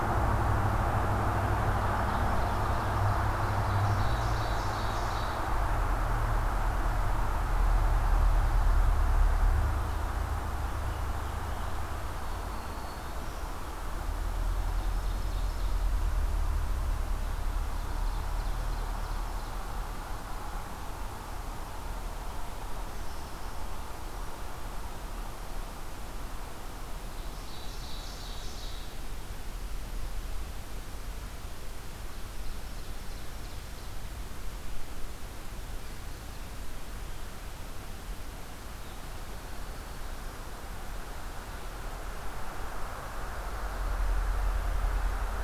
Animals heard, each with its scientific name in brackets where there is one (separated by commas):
Ovenbird (Seiurus aurocapilla), Black-throated Green Warbler (Setophaga virens)